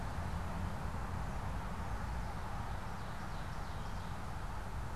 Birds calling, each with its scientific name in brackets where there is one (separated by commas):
Ovenbird (Seiurus aurocapilla)